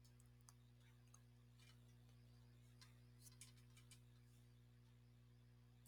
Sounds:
Laughter